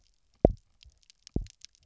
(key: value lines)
label: biophony, double pulse
recorder: SoundTrap 300